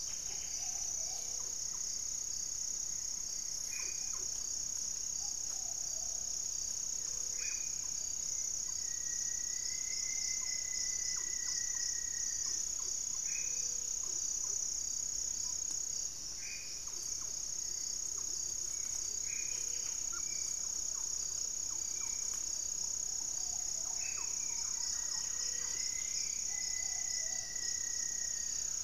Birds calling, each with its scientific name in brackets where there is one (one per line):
Hauxwell's Thrush (Turdus hauxwelli)
Rufous-fronted Antthrush (Formicarius rufifrons)
Gray-fronted Dove (Leptotila rufaxilla)
Spot-winged Antshrike (Pygiptila stellaris)
Buff-breasted Wren (Cantorchilus leucotis)
Cinereous Tinamou (Crypturellus cinereus)
Black-faced Antthrush (Formicarius analis)
Cinnamon-throated Woodcreeper (Dendrexetastes rufigula)
unidentified bird